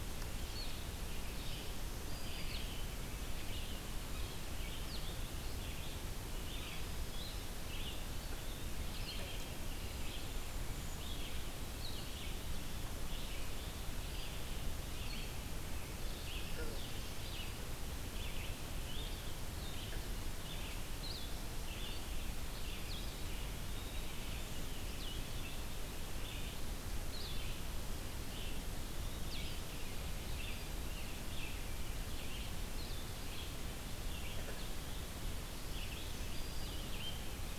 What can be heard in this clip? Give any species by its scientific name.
Vireo solitarius, Vireo olivaceus, Setophaga virens, Contopus virens